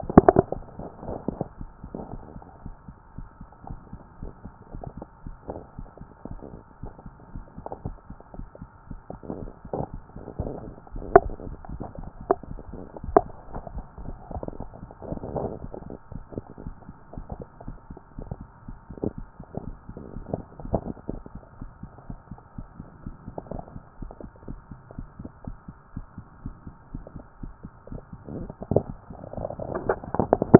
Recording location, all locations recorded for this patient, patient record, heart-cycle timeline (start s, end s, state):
mitral valve (MV)
pulmonary valve (PV)+tricuspid valve (TV)+mitral valve (MV)
#Age: nan
#Sex: Female
#Height: nan
#Weight: nan
#Pregnancy status: True
#Murmur: Absent
#Murmur locations: nan
#Most audible location: nan
#Systolic murmur timing: nan
#Systolic murmur shape: nan
#Systolic murmur grading: nan
#Systolic murmur pitch: nan
#Systolic murmur quality: nan
#Diastolic murmur timing: nan
#Diastolic murmur shape: nan
#Diastolic murmur grading: nan
#Diastolic murmur pitch: nan
#Diastolic murmur quality: nan
#Outcome: Normal
#Campaign: 2014 screening campaign
0.00	1.46	unannotated
1.46	1.56	S2
1.58	1.69	S1
1.69	1.82	systole
1.82	1.90	S2
1.90	2.12	diastole
2.12	2.22	S1
2.22	2.34	systole
2.34	2.44	S2
2.44	2.64	diastole
2.64	2.74	S1
2.74	2.88	systole
2.88	2.96	S2
2.96	3.16	diastole
3.16	3.28	S1
3.28	3.40	systole
3.40	3.48	S2
3.48	3.68	diastole
3.68	3.80	S1
3.80	3.92	systole
3.92	4.00	S2
4.00	4.20	diastole
4.20	4.32	S1
4.32	4.44	systole
4.44	4.52	S2
4.52	4.74	diastole
4.74	4.84	S1
4.84	4.96	systole
4.96	5.06	S2
5.06	5.24	diastole
5.24	5.36	S1
5.36	5.50	systole
5.50	5.60	S2
5.60	5.78	diastole
5.78	5.88	S1
5.88	6.00	systole
6.00	6.10	S2
6.10	6.28	diastole
6.28	6.40	S1
6.40	6.52	systole
6.52	6.62	S2
6.62	6.82	diastole
6.82	6.92	S1
6.92	7.04	systole
7.04	7.14	S2
7.14	7.34	diastole
7.34	7.44	S1
7.44	7.56	systole
7.56	7.64	S2
7.64	7.84	diastole
7.84	7.96	S1
7.96	8.10	systole
8.10	8.18	S2
8.18	8.36	diastole
8.36	8.48	S1
8.48	8.60	systole
8.60	8.70	S2
8.70	8.90	diastole
8.90	30.59	unannotated